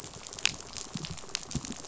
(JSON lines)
{"label": "biophony, rattle", "recorder": "SoundTrap 500"}